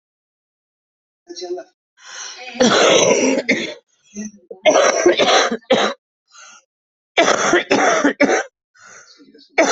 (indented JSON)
{
  "expert_labels": [
    {
      "quality": "ok",
      "cough_type": "wet",
      "dyspnea": true,
      "wheezing": false,
      "stridor": false,
      "choking": false,
      "congestion": false,
      "nothing": false,
      "diagnosis": "lower respiratory tract infection",
      "severity": "severe"
    }
  ],
  "age": 53,
  "gender": "female",
  "respiratory_condition": false,
  "fever_muscle_pain": false,
  "status": "symptomatic"
}